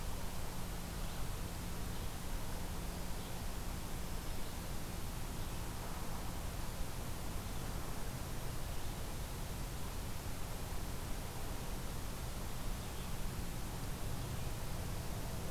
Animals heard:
forest ambience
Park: Acadia National Park